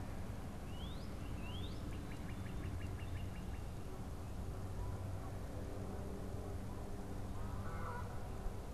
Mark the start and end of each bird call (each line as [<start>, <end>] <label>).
[0.50, 3.70] Northern Cardinal (Cardinalis cardinalis)
[2.00, 2.70] Black-capped Chickadee (Poecile atricapillus)
[7.40, 8.20] Canada Goose (Branta canadensis)